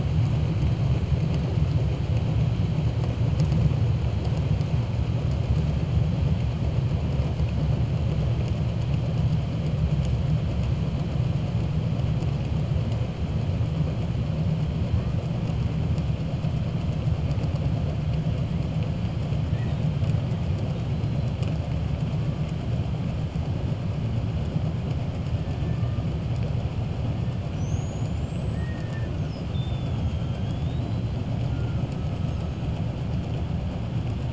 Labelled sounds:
27.4	29.1	killer whale, 1.1 to 7.9 kHz

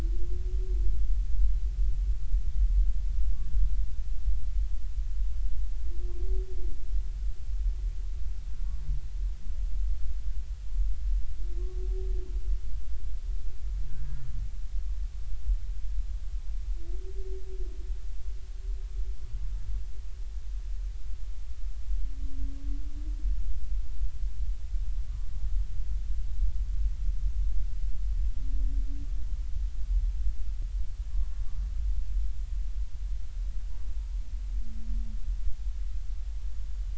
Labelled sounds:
31.1	31.4	humpback whale, 0.93 to 1.2 kHz

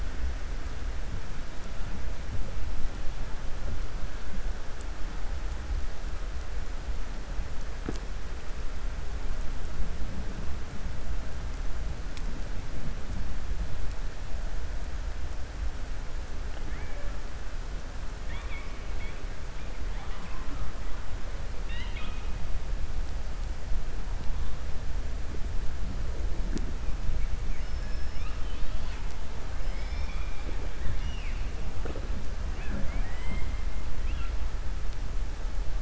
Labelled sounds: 21.5	22.3	killer whale, 1.0 to 4.2 kHz
27.5	29.0	killer whale, 1.3 to 5.4 kHz
30.7	31.4	killer whale, 1.6 to 3.6 kHz

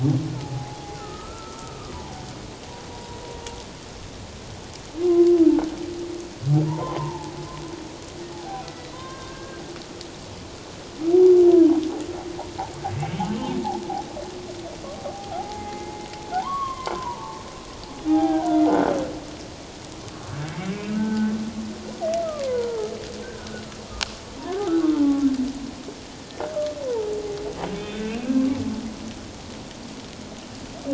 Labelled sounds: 0.4	1.9	humpback whale, 0.78 to 1.5 kHz
2.9	3.2	humpback whale, 0.91 to 1.0 kHz
5.0	5.4	humpback whale, 0.97 to 1.1 kHz
6.6	7.3	humpback whale, 0.81 to 1.1 kHz
8.3	9.6	humpback whale, 0.78 to 2.0 kHz
13.0	13.2	humpback whale, 2.2 to 2.3 kHz
15.1	18.7	humpback whale, 0.78 to 3.3 kHz
20.3	21.3	humpback whale, 0.81 to 2.4 kHz
22.4	22.9	humpback whale, 0.81 to 1.6 kHz
23.2	23.6	humpback whale, 1.4 to 1.6 kHz
24.4	25.2	humpback whale, 0.78 to 1.4 kHz
26.9	28.2	humpback whale, 0.81 to 3.7 kHz

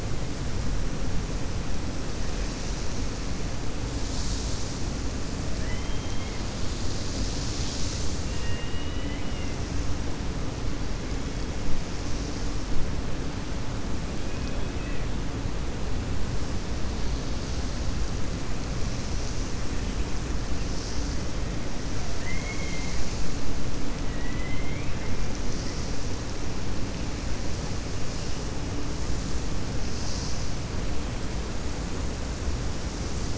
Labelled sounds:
5.5	6.4	killer whale, 1.7 to 3.3 kHz
8.3	9.5	killer whale, 1.9 to 3.9 kHz
24.1	25.0	killer whale, 1.9 to 3.2 kHz

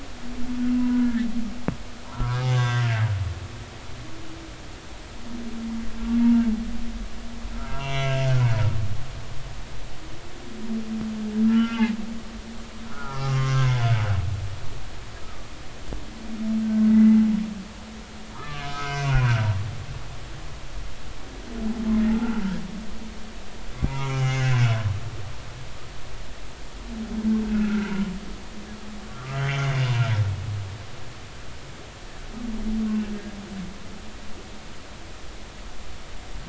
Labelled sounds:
0.8	1.3	humpback whale, 0.93 to 2.0 kHz
2.1	2.9	humpback whale, 0.90 to 6.3 kHz
7.5	8.1	humpback whale, 0.93 to 3.3 kHz
11.4	12.0	humpback whale, 0.99 to 3.0 kHz
12.9	13.9	humpback whale, 0.80 to 2.2 kHz
16.6	17.2	humpback whale, 1.5 to 2.1 kHz
18.5	19.6	humpback whale, 0.96 to 2.6 kHz
22.1	22.4	humpback whale, 1.3 to 1.5 kHz
23.9	24.5	humpback whale, 0.90 to 6.3 kHz
27.5	27.9	humpback whale, 1.3 to 1.6 kHz
29.1	29.7	humpback whale, 1.1 to 3.2 kHz

